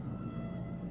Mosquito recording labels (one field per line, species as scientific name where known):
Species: Aedes albopictus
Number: one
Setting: insect culture